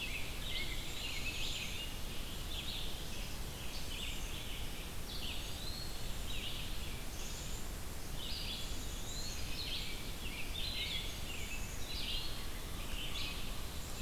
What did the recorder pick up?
American Robin, Black-capped Chickadee, Red-eyed Vireo, Black-throated Green Warbler, American Crow